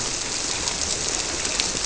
{"label": "biophony", "recorder": "SoundTrap 300"}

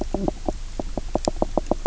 {"label": "biophony, knock croak", "recorder": "SoundTrap 300"}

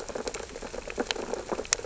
{"label": "biophony, sea urchins (Echinidae)", "recorder": "SoundTrap 600 or HydroMoth"}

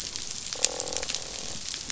{"label": "biophony, croak", "recorder": "SoundTrap 500"}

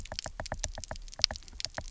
{"label": "biophony, knock", "recorder": "SoundTrap 300"}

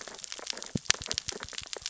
{"label": "biophony, sea urchins (Echinidae)", "recorder": "SoundTrap 600 or HydroMoth"}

